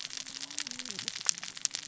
{"label": "biophony, cascading saw", "recorder": "SoundTrap 600 or HydroMoth"}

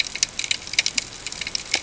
{"label": "ambient", "recorder": "HydroMoth"}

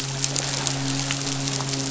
{"label": "biophony, midshipman", "recorder": "SoundTrap 500"}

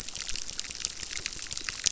{"label": "biophony, crackle", "recorder": "SoundTrap 600"}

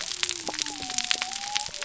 {"label": "biophony", "recorder": "SoundTrap 300"}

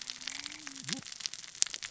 {"label": "biophony, cascading saw", "recorder": "SoundTrap 600 or HydroMoth"}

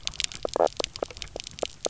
{"label": "biophony, knock croak", "recorder": "SoundTrap 300"}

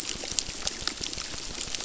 {"label": "biophony, crackle", "recorder": "SoundTrap 600"}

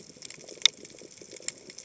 {"label": "biophony, chatter", "recorder": "HydroMoth"}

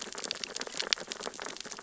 {"label": "biophony, sea urchins (Echinidae)", "recorder": "SoundTrap 600 or HydroMoth"}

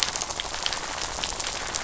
{"label": "biophony, rattle", "recorder": "SoundTrap 500"}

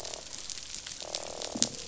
{"label": "biophony, croak", "recorder": "SoundTrap 500"}
{"label": "biophony", "recorder": "SoundTrap 500"}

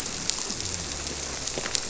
{"label": "biophony", "recorder": "SoundTrap 300"}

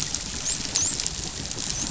{"label": "biophony, dolphin", "recorder": "SoundTrap 500"}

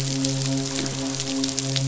{"label": "biophony, midshipman", "recorder": "SoundTrap 500"}
{"label": "biophony", "recorder": "SoundTrap 500"}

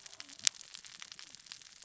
{"label": "biophony, cascading saw", "recorder": "SoundTrap 600 or HydroMoth"}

